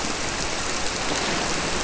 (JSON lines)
{"label": "biophony", "recorder": "SoundTrap 300"}